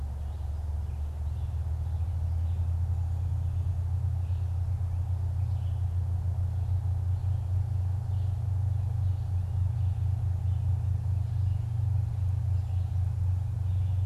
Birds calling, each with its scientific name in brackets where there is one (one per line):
Red-eyed Vireo (Vireo olivaceus)